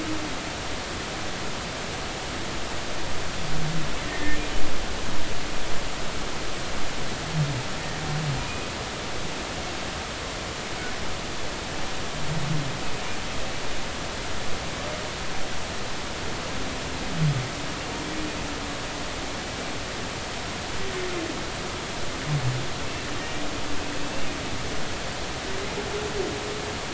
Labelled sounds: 4.0	4.4	humpback whale, 1.7 to 2.2 kHz
8.4	8.7	humpback whale, 2.3 to 2.5 kHz
23.2	23.4	humpback whale, 1.8 to 2.0 kHz
25.0	25.3	humpback whale, 2.6 to 2.8 kHz

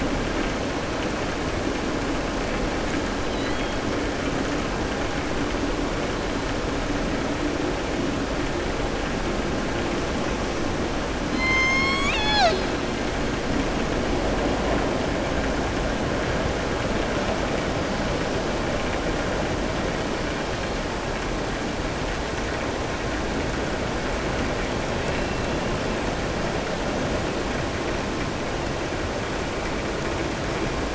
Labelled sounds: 3.2	3.7	killer whale, southern resident, 1.6 to 4.3 kHz
11.2	12.7	killer whale, southern resident, 0.73 to 7.7 kHz

